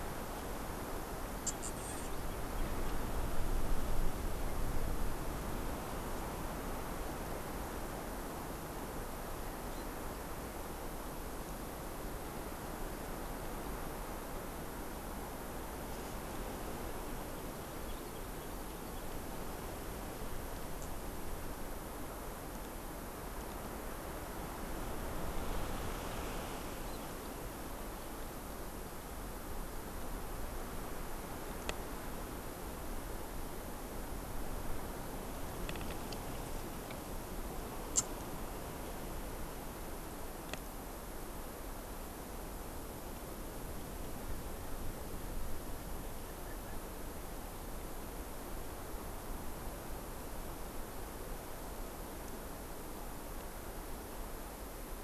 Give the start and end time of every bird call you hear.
[17.50, 19.20] Hawaii Amakihi (Chlorodrepanis virens)
[46.20, 47.00] Erckel's Francolin (Pternistis erckelii)

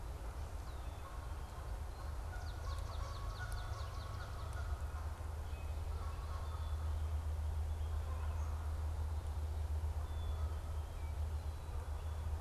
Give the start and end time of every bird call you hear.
[0.52, 1.12] Red-winged Blackbird (Agelaius phoeniceus)
[1.42, 2.22] Rusty Blackbird (Euphagus carolinus)
[2.12, 4.62] Swamp Sparrow (Melospiza georgiana)
[6.22, 7.22] Black-capped Chickadee (Poecile atricapillus)
[9.82, 10.92] Black-capped Chickadee (Poecile atricapillus)

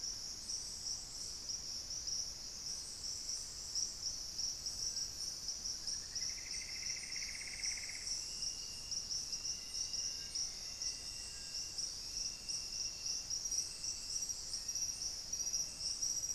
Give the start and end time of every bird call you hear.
[5.34, 8.84] Plumbeous Antbird (Myrmelastes hyperythrus)
[9.34, 11.64] Black-faced Antthrush (Formicarius analis)

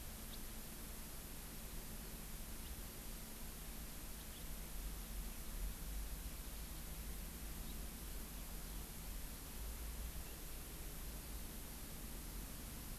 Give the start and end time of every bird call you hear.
[2.63, 2.73] House Finch (Haemorhous mexicanus)
[4.13, 4.23] House Finch (Haemorhous mexicanus)
[7.63, 7.73] House Finch (Haemorhous mexicanus)

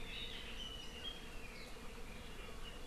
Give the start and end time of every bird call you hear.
[0.60, 1.40] Apapane (Himatione sanguinea)

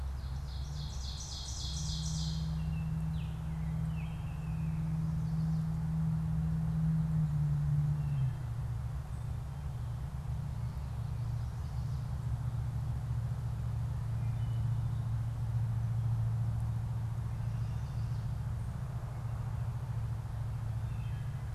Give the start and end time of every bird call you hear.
[0.00, 2.90] Ovenbird (Seiurus aurocapilla)
[2.20, 5.10] Baltimore Oriole (Icterus galbula)
[8.00, 21.50] Wood Thrush (Hylocichla mustelina)

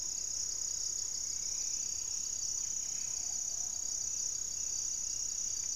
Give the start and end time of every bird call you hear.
[0.00, 3.97] Black-tailed Trogon (Trogon melanurus)
[0.00, 5.75] Black-faced Antthrush (Formicarius analis)
[0.00, 5.75] Buff-breasted Wren (Cantorchilus leucotis)
[0.37, 3.37] Striped Woodcreeper (Xiphorhynchus obsoletus)
[2.67, 5.75] Plumbeous Pigeon (Patagioenas plumbea)
[3.87, 5.75] unidentified bird

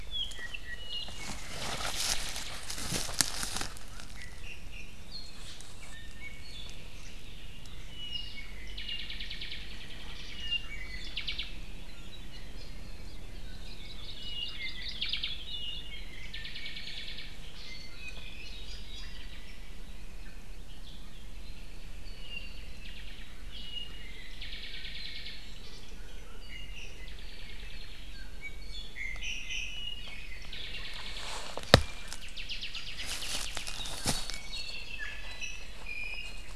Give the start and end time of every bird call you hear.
[0.00, 1.40] Apapane (Himatione sanguinea)
[3.80, 5.10] Iiwi (Drepanis coccinea)
[5.70, 6.80] Iiwi (Drepanis coccinea)
[7.80, 9.70] Apapane (Himatione sanguinea)
[10.30, 11.20] Iiwi (Drepanis coccinea)
[11.10, 11.50] Apapane (Himatione sanguinea)
[13.30, 15.90] Hawaii Creeper (Loxops mana)
[14.10, 17.40] Apapane (Himatione sanguinea)
[17.60, 19.30] Iiwi (Drepanis coccinea)
[22.00, 25.40] Apapane (Himatione sanguinea)
[26.20, 27.20] Iiwi (Drepanis coccinea)
[27.00, 28.10] Apapane (Himatione sanguinea)
[28.10, 29.90] Iiwi (Drepanis coccinea)
[30.40, 31.50] Apapane (Himatione sanguinea)
[32.10, 35.10] Apapane (Himatione sanguinea)
[34.90, 36.50] Iiwi (Drepanis coccinea)

